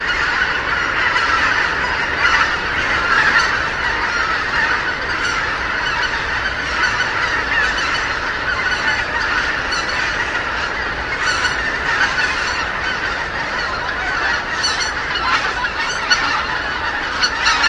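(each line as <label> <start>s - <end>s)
A group of geese call to each other outdoors with a chattering tone in the distance. 0.0s - 17.7s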